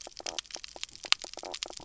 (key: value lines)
label: biophony, knock croak
recorder: SoundTrap 300